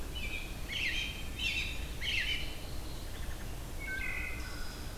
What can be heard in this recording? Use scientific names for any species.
Turdus migratorius, Hylocichla mustelina